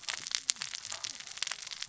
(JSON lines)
{"label": "biophony, cascading saw", "recorder": "SoundTrap 600 or HydroMoth"}